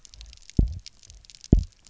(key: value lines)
label: biophony, double pulse
recorder: SoundTrap 300